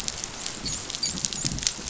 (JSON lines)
{"label": "biophony, dolphin", "recorder": "SoundTrap 500"}